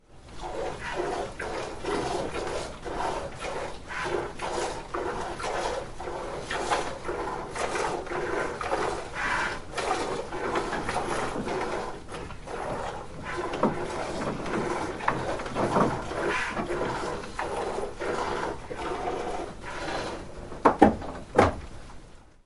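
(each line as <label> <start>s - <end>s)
An animal is being milked into a bucket. 0.0s - 20.5s
The bucket is being moved. 20.5s - 22.5s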